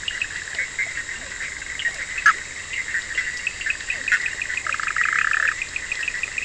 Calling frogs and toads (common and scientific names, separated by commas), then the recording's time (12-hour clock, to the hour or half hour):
Physalaemus cuvieri, Bischoff's tree frog (Boana bischoffi), Cochran's lime tree frog (Sphaenorhynchus surdus), two-colored oval frog (Elachistocleis bicolor), Scinax perereca
~1am